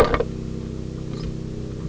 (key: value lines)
label: anthrophony, boat engine
recorder: SoundTrap 300